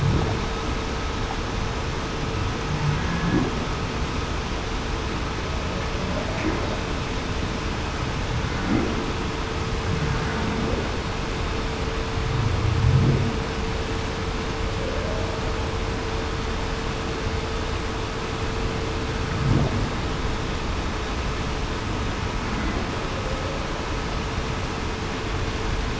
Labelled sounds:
14.8	15.3	humpback whale, 0.49 to 0.68 kHz

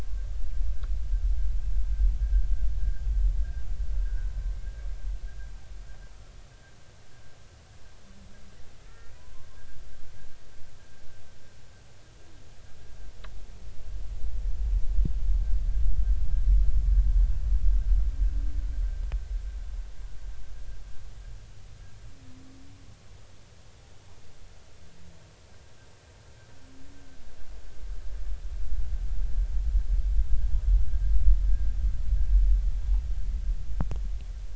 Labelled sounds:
4.0	4.3	humpback whale, 1.4 to 1.7 kHz
8.8	9.1	humpback whale, 1.3 to 1.9 kHz

